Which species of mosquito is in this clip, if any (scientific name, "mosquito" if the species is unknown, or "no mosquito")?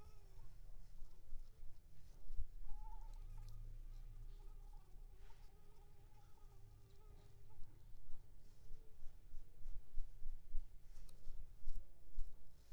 Anopheles squamosus